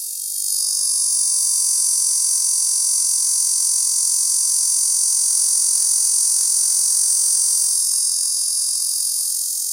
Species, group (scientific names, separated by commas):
Cacama valvata, Cicadidae